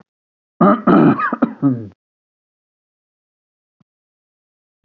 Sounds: Throat clearing